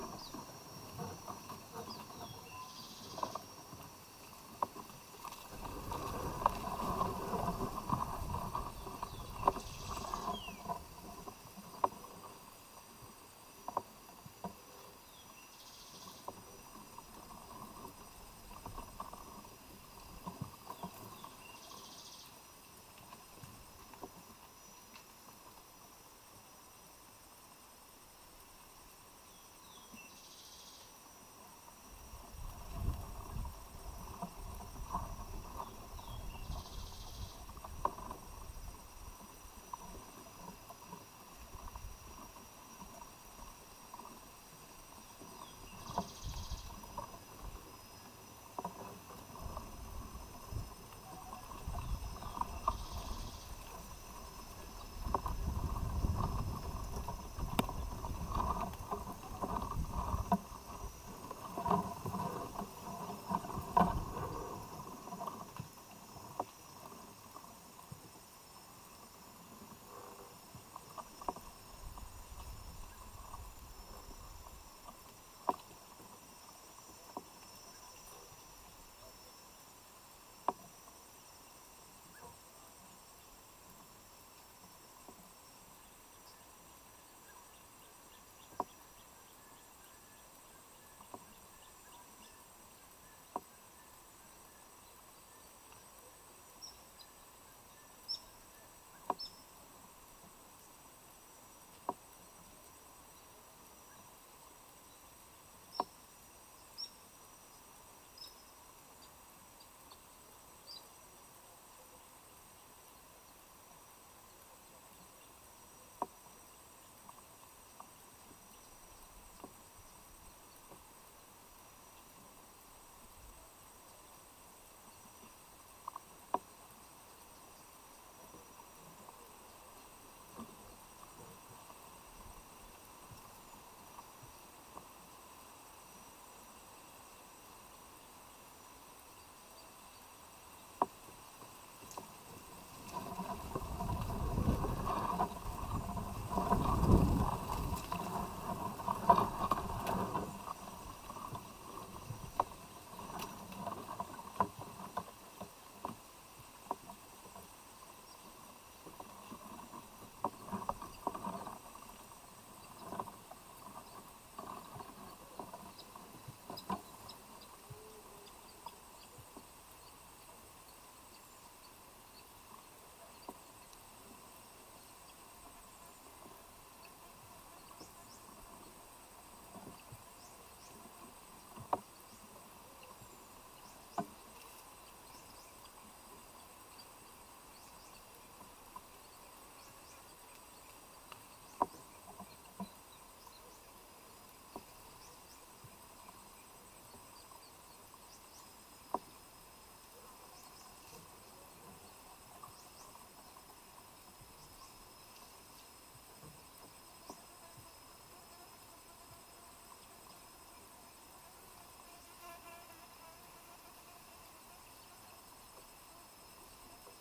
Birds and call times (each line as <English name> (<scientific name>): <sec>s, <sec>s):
Cinnamon-chested Bee-eater (Merops oreobates): 98.2s, 108.2s